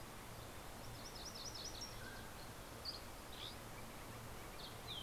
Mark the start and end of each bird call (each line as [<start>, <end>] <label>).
[0.00, 1.20] Mountain Chickadee (Poecile gambeli)
[0.80, 2.10] MacGillivray's Warbler (Geothlypis tolmiei)
[1.40, 2.70] Mountain Quail (Oreortyx pictus)
[2.60, 4.60] Dusky Flycatcher (Empidonax oberholseri)
[2.80, 5.03] Northern Flicker (Colaptes auratus)